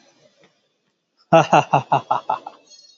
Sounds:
Laughter